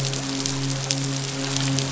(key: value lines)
label: biophony, midshipman
recorder: SoundTrap 500